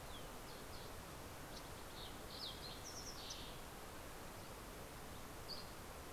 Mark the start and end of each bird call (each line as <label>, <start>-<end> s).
Fox Sparrow (Passerella iliaca), 0.3-4.0 s
Dusky Flycatcher (Empidonax oberholseri), 5.0-6.0 s